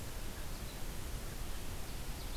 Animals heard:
forest ambience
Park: Marsh-Billings-Rockefeller National Historical Park